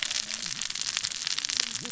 {"label": "biophony, cascading saw", "recorder": "SoundTrap 600 or HydroMoth"}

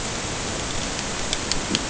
{"label": "ambient", "recorder": "HydroMoth"}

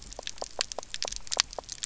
{"label": "biophony, knock croak", "recorder": "SoundTrap 300"}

